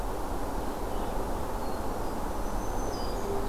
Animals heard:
Red-eyed Vireo (Vireo olivaceus), Hermit Thrush (Catharus guttatus), Black-throated Green Warbler (Setophaga virens)

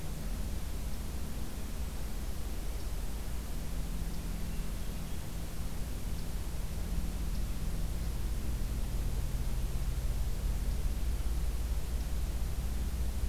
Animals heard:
Hermit Thrush (Catharus guttatus)

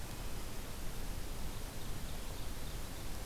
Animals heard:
Ovenbird (Seiurus aurocapilla)

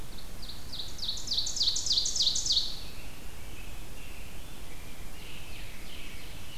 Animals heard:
Ovenbird (Seiurus aurocapilla), American Robin (Turdus migratorius), Rose-breasted Grosbeak (Pheucticus ludovicianus)

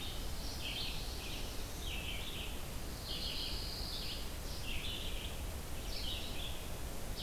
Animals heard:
Pine Warbler (Setophaga pinus), Black-throated Blue Warbler (Setophaga caerulescens), Red-eyed Vireo (Vireo olivaceus)

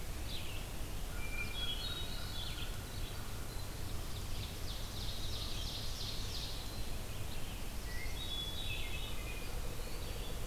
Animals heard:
Hermit Thrush (Catharus guttatus), Ovenbird (Seiurus aurocapilla), Eastern Wood-Pewee (Contopus virens), Red-eyed Vireo (Vireo olivaceus)

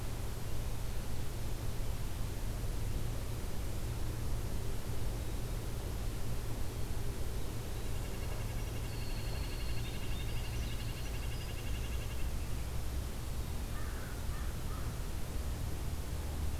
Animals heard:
American Crow (Corvus brachyrhynchos), Winter Wren (Troglodytes hiemalis), Red-breasted Nuthatch (Sitta canadensis)

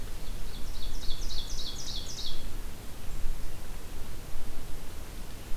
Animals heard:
Ovenbird (Seiurus aurocapilla)

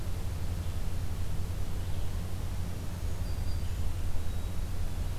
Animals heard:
Hermit Thrush (Catharus guttatus), Black-throated Green Warbler (Setophaga virens)

